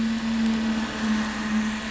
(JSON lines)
{"label": "anthrophony, boat engine", "recorder": "SoundTrap 500"}